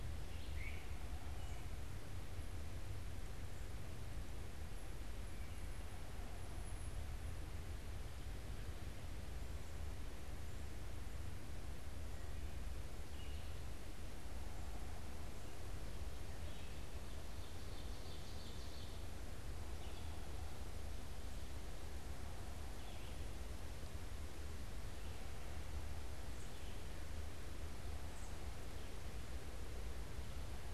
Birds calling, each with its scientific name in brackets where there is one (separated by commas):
Red-eyed Vireo (Vireo olivaceus), Great Crested Flycatcher (Myiarchus crinitus), Wood Thrush (Hylocichla mustelina), Ovenbird (Seiurus aurocapilla)